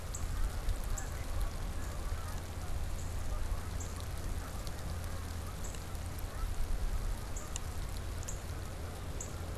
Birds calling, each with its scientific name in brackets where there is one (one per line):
Canada Goose (Branta canadensis)
Northern Cardinal (Cardinalis cardinalis)